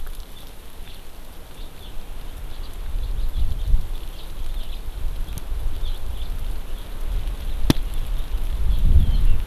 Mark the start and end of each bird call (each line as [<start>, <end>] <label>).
[6.12, 6.33] House Finch (Haemorhous mexicanus)